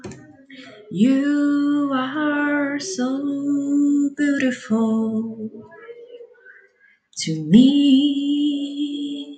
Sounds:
Sigh